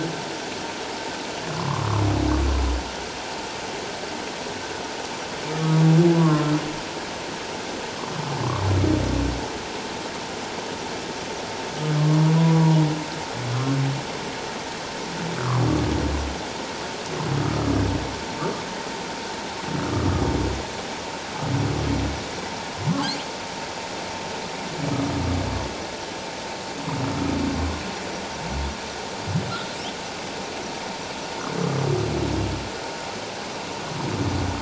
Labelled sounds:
1.5	1.9	humpback whale, 0.97 to 1.2 kHz
5.6	6.5	humpback whale, 0.94 to 1.2 kHz
12.0	12.8	humpback whale, 0.91 to 1.2 kHz

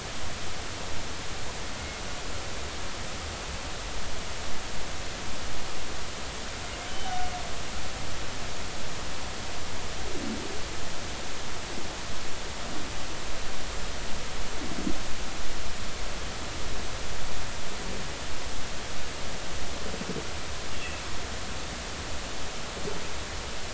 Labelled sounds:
6.9	7.2	humpback whale, 2.9 to 3.1 kHz

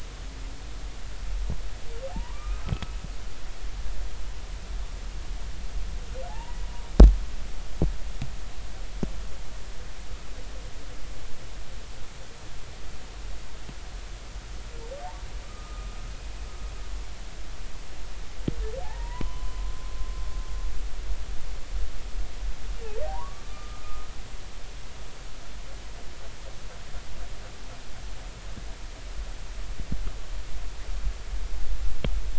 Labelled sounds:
2.1	2.9	humpback whale, 0.80 to 2.6 kHz
6.3	6.6	humpback whale, 0.80 to 1.0 kHz
15.4	15.9	humpback whale, 1.2 to 1.3 kHz
18.8	19.7	humpback whale, 0.80 to 2.0 kHz
23.1	24.1	humpback whale, 0.80 to 1.3 kHz

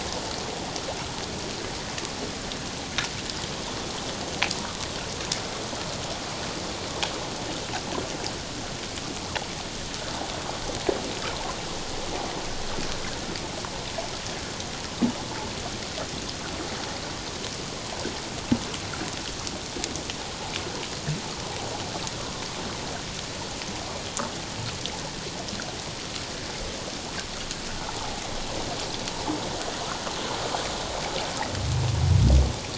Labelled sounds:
28.0	28.2	water noise, 0.78 to 0.94 kHz

